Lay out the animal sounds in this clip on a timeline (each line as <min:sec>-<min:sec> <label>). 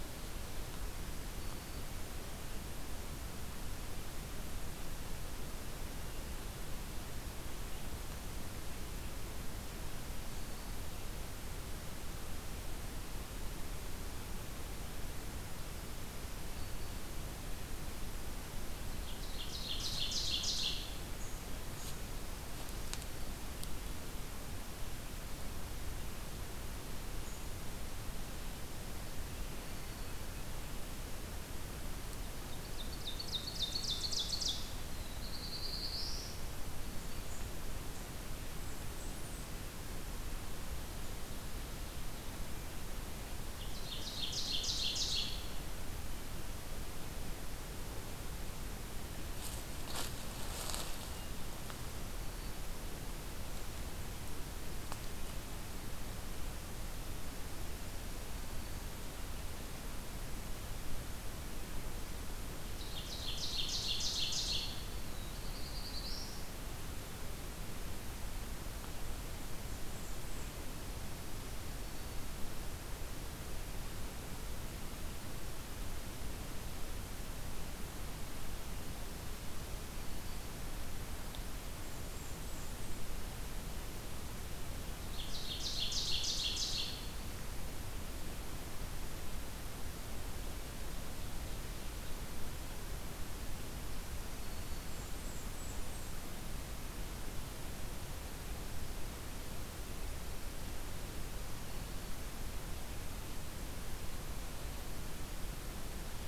0:16.3-0:17.1 Black-throated Green Warbler (Setophaga virens)
0:19.0-0:21.1 Ovenbird (Seiurus aurocapilla)
0:29.5-0:30.3 Black-throated Green Warbler (Setophaga virens)
0:32.4-0:34.8 Ovenbird (Seiurus aurocapilla)
0:35.0-0:36.5 Black-throated Blue Warbler (Setophaga caerulescens)
0:36.7-0:37.4 Black-throated Green Warbler (Setophaga virens)
0:38.3-0:39.6 Blackburnian Warbler (Setophaga fusca)
0:43.5-0:45.6 Ovenbird (Seiurus aurocapilla)
1:02.7-1:04.9 Ovenbird (Seiurus aurocapilla)
1:04.9-1:06.5 Black-throated Blue Warbler (Setophaga caerulescens)
1:09.7-1:10.7 Blackburnian Warbler (Setophaga fusca)
1:11.6-1:12.3 Black-throated Green Warbler (Setophaga virens)
1:19.6-1:20.5 Black-throated Green Warbler (Setophaga virens)
1:21.7-1:23.1 Blackburnian Warbler (Setophaga fusca)
1:25.0-1:27.1 Ovenbird (Seiurus aurocapilla)
1:34.3-1:35.0 Black-throated Green Warbler (Setophaga virens)
1:34.8-1:36.1 Blackburnian Warbler (Setophaga fusca)
1:41.6-1:42.3 Black-throated Green Warbler (Setophaga virens)